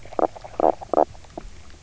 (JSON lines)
{"label": "biophony, knock croak", "recorder": "SoundTrap 300"}